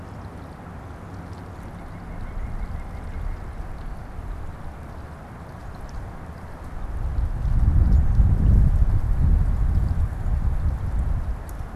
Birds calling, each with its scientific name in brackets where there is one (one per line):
White-breasted Nuthatch (Sitta carolinensis)